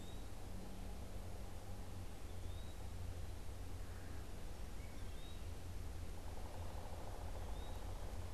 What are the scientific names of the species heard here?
Contopus virens, Melanerpes carolinus, unidentified bird